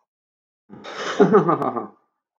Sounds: Laughter